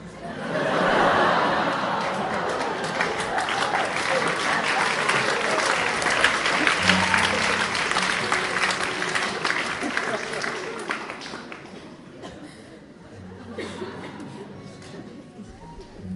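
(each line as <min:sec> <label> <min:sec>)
0:00.0 An audience laughs in a concert hall. 0:02.9
0:02.9 An audience claps and cheers in a concert hall. 0:11.6
0:11.4 The audience is mumbling in a concert hall. 0:16.1
0:12.2 A person coughs once inside a concert hall. 0:12.4
0:13.4 A person gently plays a guitar in a concert hall. 0:16.2
0:13.6 A person coughs twice inside a concert hall. 0:14.6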